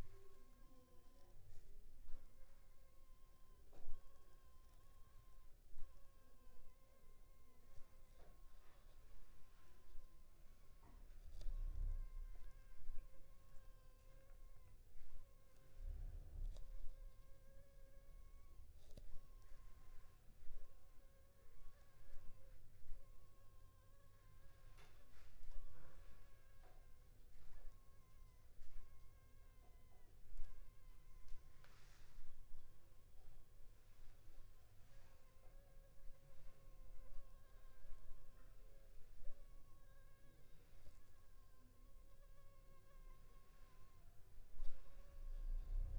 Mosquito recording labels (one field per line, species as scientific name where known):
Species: Anopheles funestus s.s.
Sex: female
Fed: unfed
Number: one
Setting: cup